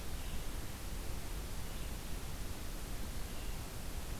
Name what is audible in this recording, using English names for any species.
Blue-headed Vireo